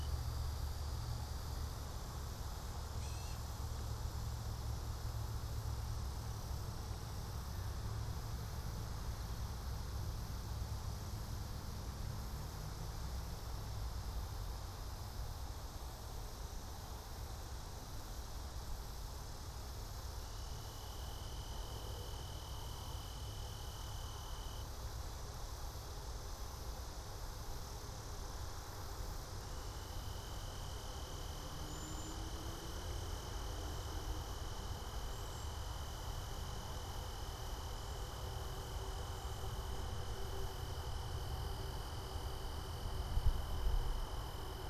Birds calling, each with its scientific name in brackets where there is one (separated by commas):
Cedar Waxwing (Bombycilla cedrorum), Gray Catbird (Dumetella carolinensis)